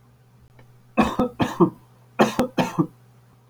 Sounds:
Cough